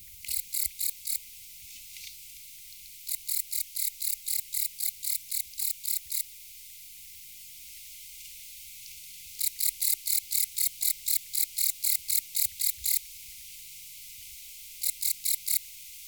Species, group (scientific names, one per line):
Modestana ebneri
Orthoptera